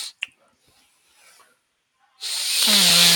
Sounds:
Sigh